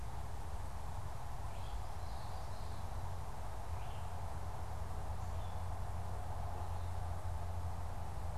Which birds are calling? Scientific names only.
Geothlypis trichas